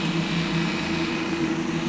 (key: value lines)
label: anthrophony, boat engine
recorder: SoundTrap 500